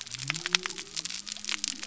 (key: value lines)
label: biophony
recorder: SoundTrap 300